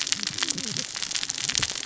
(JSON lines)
{"label": "biophony, cascading saw", "recorder": "SoundTrap 600 or HydroMoth"}